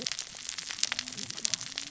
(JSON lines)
{"label": "biophony, cascading saw", "recorder": "SoundTrap 600 or HydroMoth"}